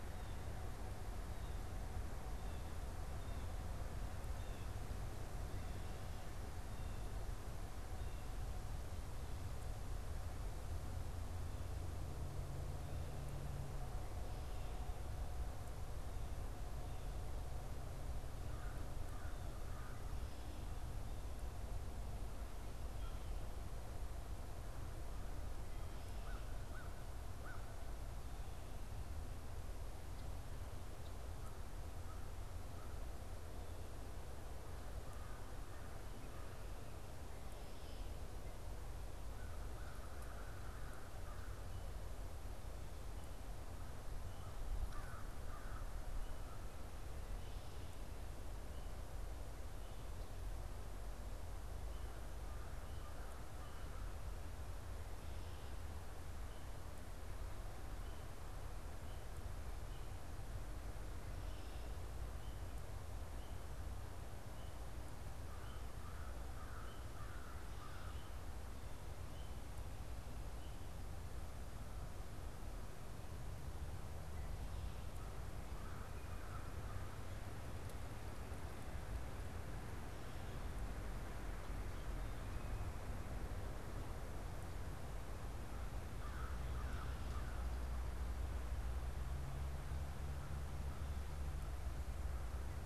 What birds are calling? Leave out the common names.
Cyanocitta cristata, Corvus brachyrhynchos